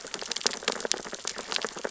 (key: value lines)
label: biophony, sea urchins (Echinidae)
recorder: SoundTrap 600 or HydroMoth